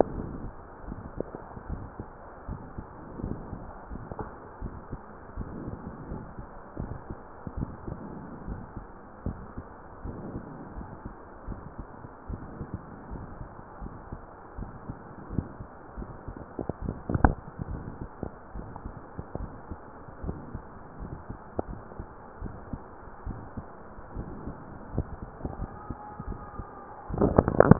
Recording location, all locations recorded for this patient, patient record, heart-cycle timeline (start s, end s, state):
pulmonary valve (PV)
aortic valve (AV)+pulmonary valve (PV)+tricuspid valve (TV)+mitral valve (MV)
#Age: Child
#Sex: Female
#Height: 140.0 cm
#Weight: 41.8 kg
#Pregnancy status: False
#Murmur: Absent
#Murmur locations: nan
#Most audible location: nan
#Systolic murmur timing: nan
#Systolic murmur shape: nan
#Systolic murmur grading: nan
#Systolic murmur pitch: nan
#Systolic murmur quality: nan
#Diastolic murmur timing: nan
#Diastolic murmur shape: nan
#Diastolic murmur grading: nan
#Diastolic murmur pitch: nan
#Diastolic murmur quality: nan
#Outcome: Abnormal
#Campaign: 2015 screening campaign
0.00	2.09	unannotated
2.09	2.46	diastole
2.46	2.62	S1
2.62	2.74	systole
2.74	2.86	S2
2.86	3.19	diastole
3.19	3.32	S1
3.32	3.50	systole
3.50	3.60	S2
3.60	3.89	diastole
3.89	4.02	S1
4.02	4.16	systole
4.16	4.30	S2
4.30	4.58	diastole
4.58	4.74	S1
4.74	4.88	systole
4.88	5.00	S2
5.00	5.35	diastole
5.35	5.48	S1
5.48	5.66	systole
5.66	5.81	S2
5.81	6.09	diastole
6.09	6.23	S1
6.23	6.36	systole
6.36	6.48	S2
6.48	6.78	diastole
6.78	6.96	S1
6.96	7.08	systole
7.08	7.18	S2
7.18	7.45	diastole
7.45	27.79	unannotated